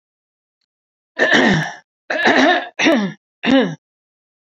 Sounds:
Throat clearing